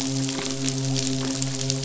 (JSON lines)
{"label": "biophony, midshipman", "recorder": "SoundTrap 500"}